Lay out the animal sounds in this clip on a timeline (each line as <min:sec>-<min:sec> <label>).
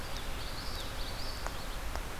0:00.0-0:01.8 Common Yellowthroat (Geothlypis trichas)